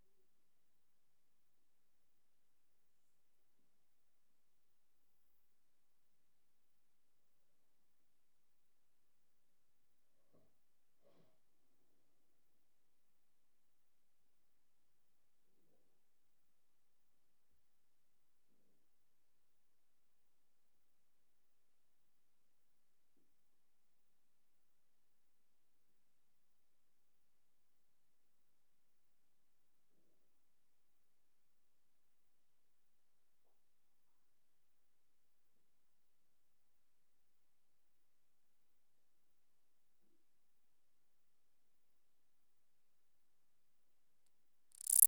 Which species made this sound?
Lluciapomaresius stalii